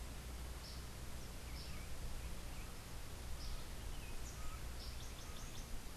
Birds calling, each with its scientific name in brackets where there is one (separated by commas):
Yellow Warbler (Setophaga petechia), Laughing Falcon (Herpetotheres cachinnans)